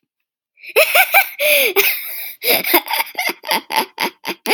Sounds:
Laughter